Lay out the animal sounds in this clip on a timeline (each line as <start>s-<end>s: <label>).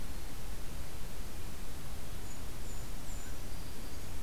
2.0s-3.4s: Golden-crowned Kinglet (Regulus satrapa)
3.1s-4.2s: Black-throated Green Warbler (Setophaga virens)